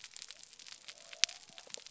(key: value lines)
label: biophony
recorder: SoundTrap 300